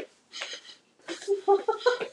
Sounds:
Sniff